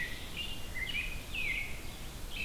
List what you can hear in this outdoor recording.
American Robin, Red-eyed Vireo